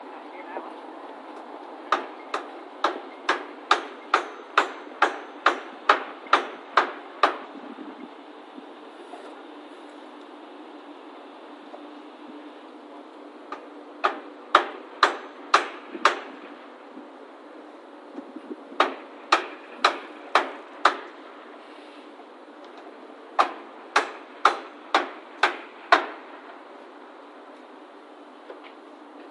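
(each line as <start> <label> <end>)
1.6 A hammer hitting in the distance. 7.7
1.6 Construction work noises. 7.7
13.5 A hammer hitting in the distance. 16.5
13.5 Construction work noises. 16.5
18.3 A hammer hitting in the distance. 21.3
18.3 Construction work noises. 21.3
23.3 A hammer hitting in the distance. 26.4
23.3 Construction work noises. 26.4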